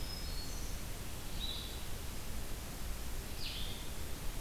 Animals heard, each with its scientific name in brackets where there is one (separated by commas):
Black-throated Green Warbler (Setophaga virens), Blue-headed Vireo (Vireo solitarius)